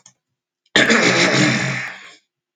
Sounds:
Throat clearing